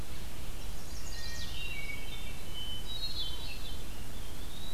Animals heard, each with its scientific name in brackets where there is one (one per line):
Hermit Thrush (Catharus guttatus)
Eastern Wood-Pewee (Contopus virens)
Chestnut-sided Warbler (Setophaga pensylvanica)
Red-eyed Vireo (Vireo olivaceus)